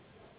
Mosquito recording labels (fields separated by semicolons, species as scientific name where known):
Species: Anopheles gambiae s.s.; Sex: female; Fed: unfed; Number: one; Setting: insect culture